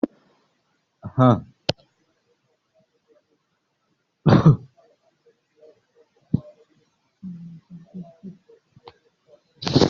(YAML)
expert_labels:
- quality: poor
  cough_type: dry
  dyspnea: false
  wheezing: false
  stridor: false
  choking: false
  congestion: false
  nothing: true
  diagnosis: healthy cough
  severity: pseudocough/healthy cough
gender: female
respiratory_condition: true
fever_muscle_pain: true
status: COVID-19